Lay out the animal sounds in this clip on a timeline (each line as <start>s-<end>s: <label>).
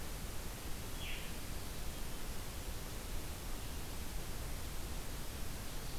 0.8s-1.4s: Veery (Catharus fuscescens)